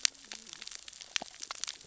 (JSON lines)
{"label": "biophony, cascading saw", "recorder": "SoundTrap 600 or HydroMoth"}